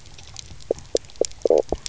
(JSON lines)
{"label": "biophony, knock croak", "recorder": "SoundTrap 300"}